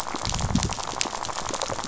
{"label": "biophony, rattle", "recorder": "SoundTrap 500"}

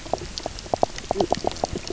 {"label": "biophony, knock croak", "recorder": "SoundTrap 300"}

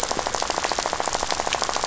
{"label": "biophony, rattle", "recorder": "SoundTrap 500"}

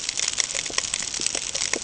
{"label": "ambient", "recorder": "HydroMoth"}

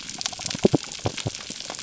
{"label": "biophony", "recorder": "SoundTrap 300"}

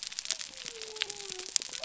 {"label": "biophony", "recorder": "SoundTrap 300"}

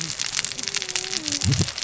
{"label": "biophony, cascading saw", "recorder": "SoundTrap 600 or HydroMoth"}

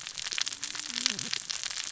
{"label": "biophony, cascading saw", "recorder": "SoundTrap 600 or HydroMoth"}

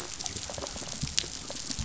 {"label": "biophony", "recorder": "SoundTrap 500"}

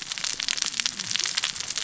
{"label": "biophony, cascading saw", "recorder": "SoundTrap 600 or HydroMoth"}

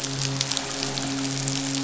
{"label": "biophony, midshipman", "recorder": "SoundTrap 500"}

